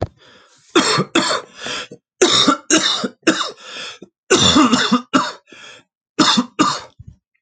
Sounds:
Cough